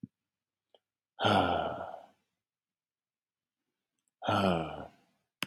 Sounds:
Sigh